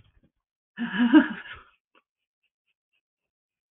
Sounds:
Laughter